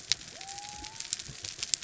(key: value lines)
label: biophony
recorder: SoundTrap 300